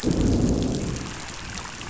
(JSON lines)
{"label": "biophony, growl", "recorder": "SoundTrap 500"}